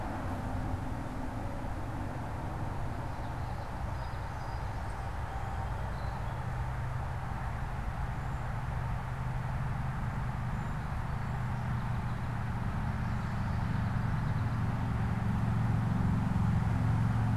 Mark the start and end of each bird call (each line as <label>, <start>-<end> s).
Song Sparrow (Melospiza melodia), 3.7-6.5 s
Common Yellowthroat (Geothlypis trichas), 13.4-14.8 s